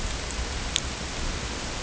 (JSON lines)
{"label": "ambient", "recorder": "HydroMoth"}